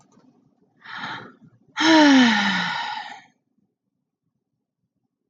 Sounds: Sigh